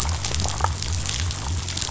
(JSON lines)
{"label": "biophony", "recorder": "SoundTrap 500"}